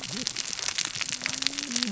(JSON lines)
{"label": "biophony, cascading saw", "recorder": "SoundTrap 600 or HydroMoth"}